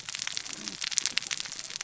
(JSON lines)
{"label": "biophony, cascading saw", "recorder": "SoundTrap 600 or HydroMoth"}